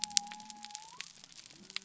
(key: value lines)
label: biophony
recorder: SoundTrap 300